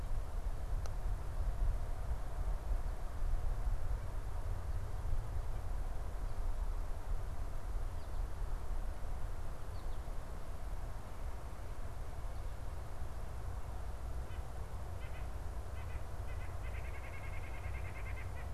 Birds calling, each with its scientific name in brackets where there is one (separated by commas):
White-breasted Nuthatch (Sitta carolinensis), American Goldfinch (Spinus tristis)